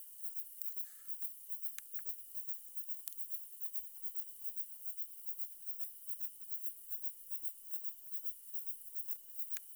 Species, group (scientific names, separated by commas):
Platycleis intermedia, Orthoptera